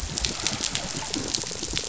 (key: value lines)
label: biophony
recorder: SoundTrap 500